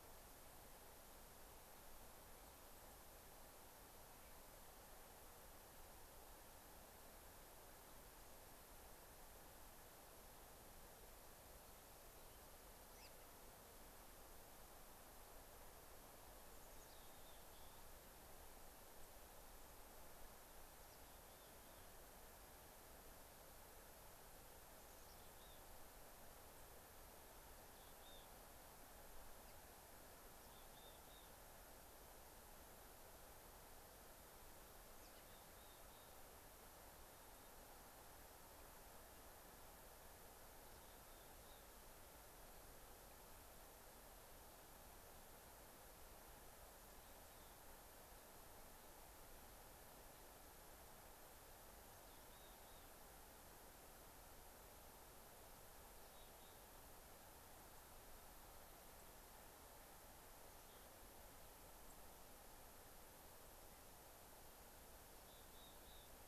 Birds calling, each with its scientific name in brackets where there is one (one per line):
American Robin (Turdus migratorius)
Mountain Chickadee (Poecile gambeli)
White-crowned Sparrow (Zonotrichia leucophrys)